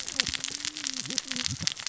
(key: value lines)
label: biophony, cascading saw
recorder: SoundTrap 600 or HydroMoth